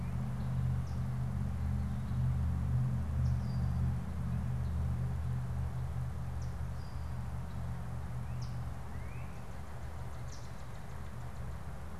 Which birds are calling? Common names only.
Yellow Warbler, Red-winged Blackbird, Northern Cardinal